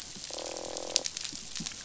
{"label": "biophony, croak", "recorder": "SoundTrap 500"}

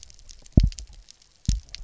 {"label": "biophony, double pulse", "recorder": "SoundTrap 300"}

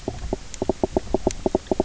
{"label": "biophony, knock croak", "recorder": "SoundTrap 300"}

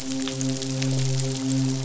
{"label": "biophony, midshipman", "recorder": "SoundTrap 500"}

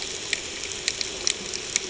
{"label": "ambient", "recorder": "HydroMoth"}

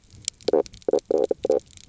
{"label": "biophony, knock croak", "recorder": "SoundTrap 300"}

